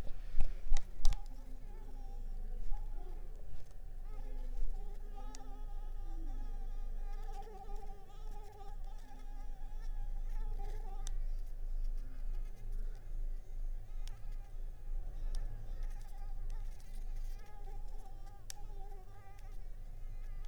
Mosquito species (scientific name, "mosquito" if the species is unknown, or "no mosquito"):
Anopheles ziemanni